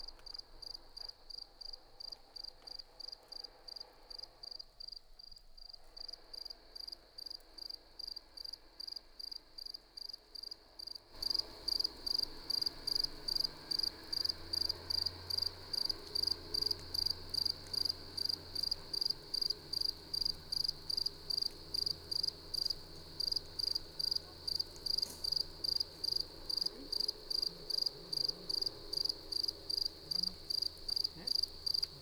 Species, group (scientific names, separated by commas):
Gryllus campestris, Orthoptera